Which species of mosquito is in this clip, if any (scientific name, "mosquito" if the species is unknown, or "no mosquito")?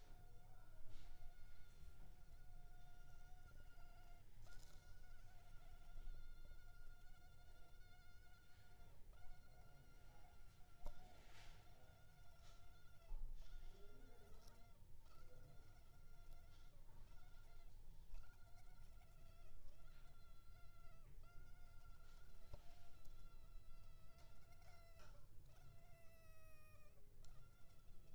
Culex pipiens complex